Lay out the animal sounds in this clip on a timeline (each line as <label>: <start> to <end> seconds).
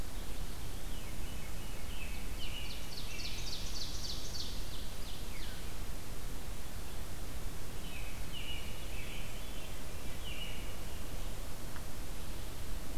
Veery (Catharus fuscescens): 0.0 to 2.4 seconds
Ovenbird (Seiurus aurocapilla): 1.9 to 5.7 seconds
American Robin (Turdus migratorius): 2.3 to 3.5 seconds
Veery (Catharus fuscescens): 5.1 to 5.7 seconds
American Robin (Turdus migratorius): 7.6 to 9.3 seconds
Veery (Catharus fuscescens): 9.1 to 10.7 seconds